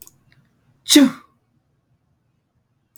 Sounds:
Sneeze